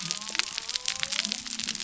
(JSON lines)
{"label": "biophony", "recorder": "SoundTrap 300"}